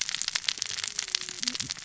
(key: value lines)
label: biophony, cascading saw
recorder: SoundTrap 600 or HydroMoth